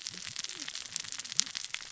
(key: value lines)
label: biophony, cascading saw
recorder: SoundTrap 600 or HydroMoth